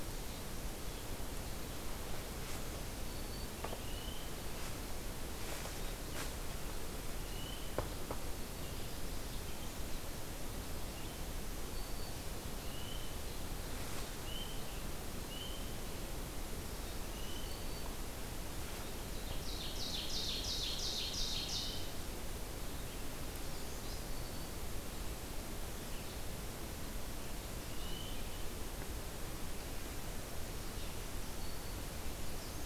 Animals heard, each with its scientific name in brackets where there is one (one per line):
Black-throated Green Warbler (Setophaga virens)
Ovenbird (Seiurus aurocapilla)